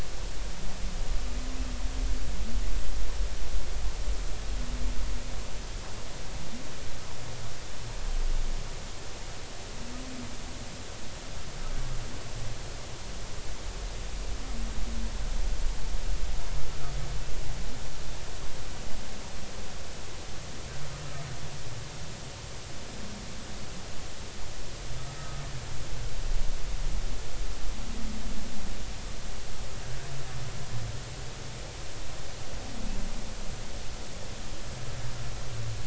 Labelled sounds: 25.2	25.4	humpback whale, 1.2 to 1.3 kHz

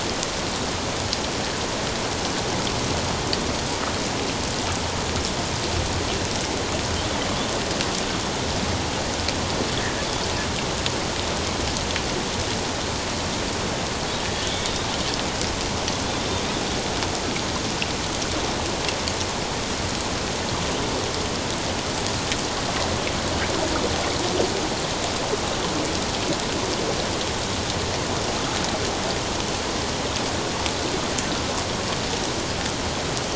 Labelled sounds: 9.8	10.1	Pacific white-sided dolphin, 1.6 to 2.0 kHz
14.3	14.9	Pacific white-sided dolphin, 3.1 to 3.8 kHz

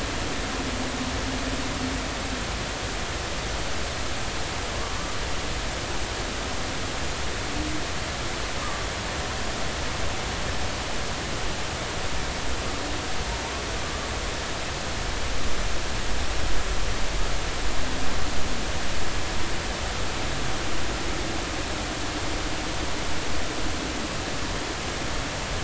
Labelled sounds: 4.7	5.0	humpback whale, 1.0 to 1.2 kHz
8.6	8.9	humpback whale, 1.1 to 1.3 kHz

